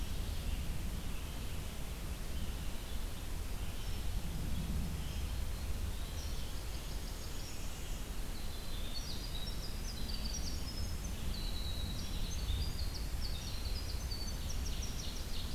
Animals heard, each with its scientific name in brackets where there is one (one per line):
Ovenbird (Seiurus aurocapilla)
Blackburnian Warbler (Setophaga fusca)
Eastern Wood-Pewee (Contopus virens)
Winter Wren (Troglodytes hiemalis)
Red-eyed Vireo (Vireo olivaceus)